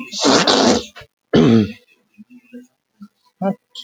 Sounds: Sneeze